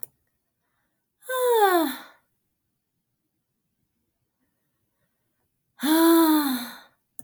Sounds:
Sigh